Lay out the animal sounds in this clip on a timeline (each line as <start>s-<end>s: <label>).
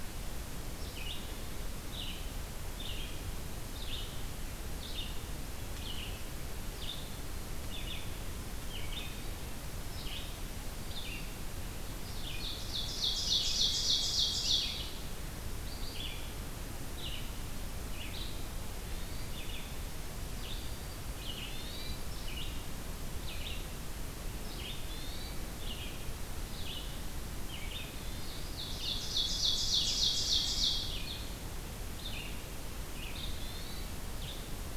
0.7s-10.2s: Red-eyed Vireo (Vireo olivaceus)
10.5s-11.3s: Black-throated Green Warbler (Setophaga virens)
10.7s-34.8s: Red-eyed Vireo (Vireo olivaceus)
12.3s-14.8s: Ovenbird (Seiurus aurocapilla)
18.8s-19.4s: Hermit Thrush (Catharus guttatus)
20.4s-21.1s: Black-throated Green Warbler (Setophaga virens)
21.3s-22.0s: Hermit Thrush (Catharus guttatus)
24.8s-25.4s: Hermit Thrush (Catharus guttatus)
27.8s-28.5s: Hermit Thrush (Catharus guttatus)
28.5s-30.9s: Ovenbird (Seiurus aurocapilla)
33.1s-34.0s: Hermit Thrush (Catharus guttatus)